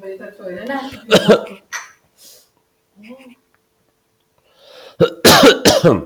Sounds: Cough